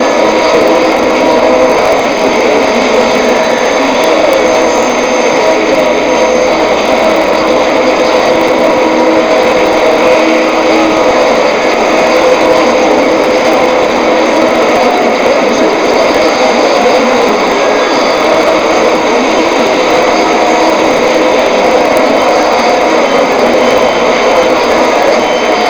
Is the sound distant?
no